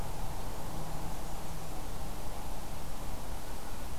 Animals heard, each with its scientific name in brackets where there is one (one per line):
Blackburnian Warbler (Setophaga fusca)